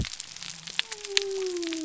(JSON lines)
{"label": "biophony", "recorder": "SoundTrap 300"}